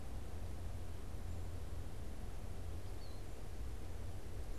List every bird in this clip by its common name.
Eastern Wood-Pewee